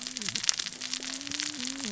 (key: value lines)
label: biophony, cascading saw
recorder: SoundTrap 600 or HydroMoth